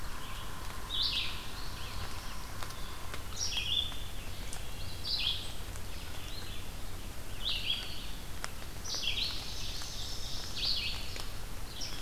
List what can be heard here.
Yellow-bellied Sapsucker, Red-eyed Vireo, Black-throated Blue Warbler, Wood Thrush, Eastern Wood-Pewee, Ovenbird, Indigo Bunting